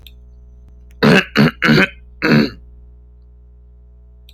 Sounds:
Throat clearing